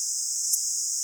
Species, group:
Poecilimon hoelzeli, Orthoptera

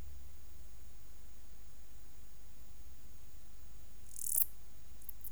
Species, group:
Lluciapomaresius stalii, Orthoptera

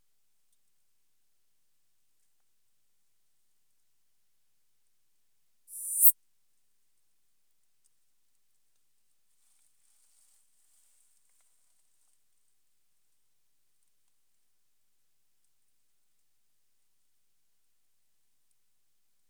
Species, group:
Poecilimon hoelzeli, Orthoptera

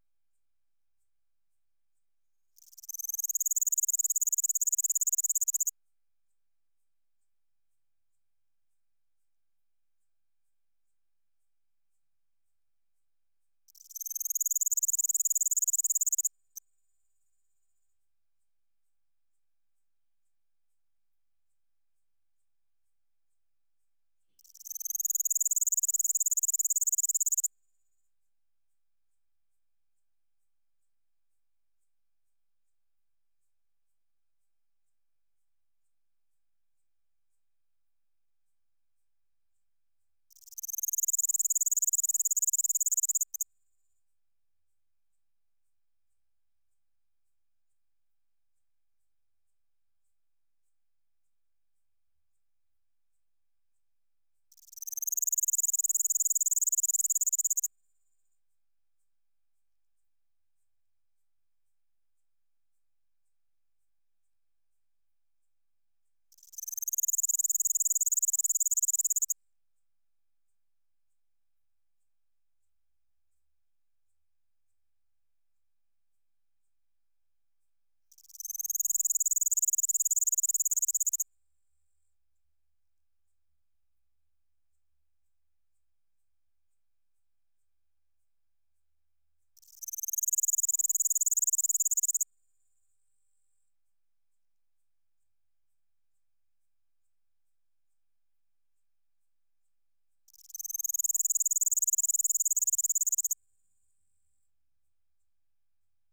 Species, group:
Pholidoptera littoralis, Orthoptera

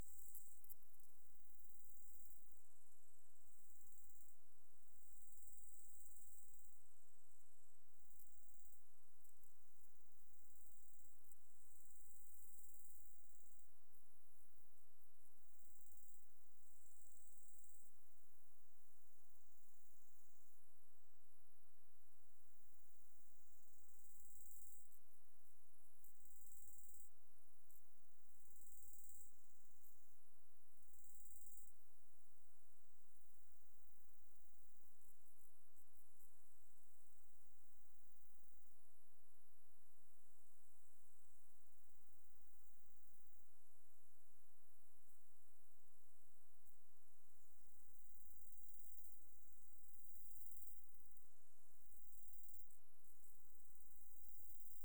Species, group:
Chorthippus biguttulus, Orthoptera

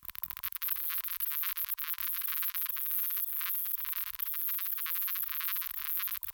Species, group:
Pycnogaster jugicola, Orthoptera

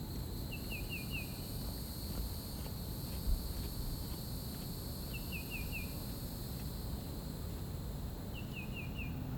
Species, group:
Neocicada hieroglyphica, Cicadidae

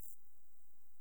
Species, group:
Chorthippus brunneus, Orthoptera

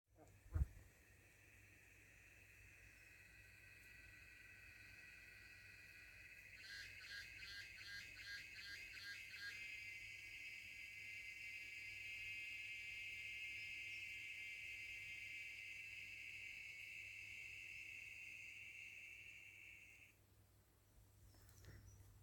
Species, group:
Psaltoda moerens, Cicadidae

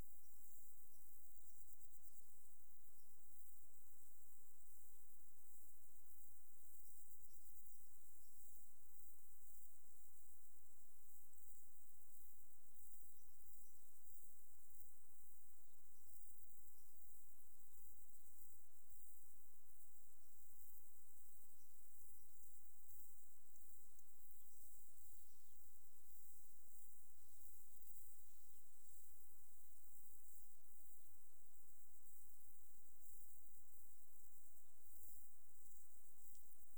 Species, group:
Poecilimon jonicus, Orthoptera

